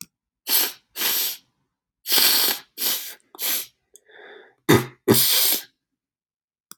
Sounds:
Sniff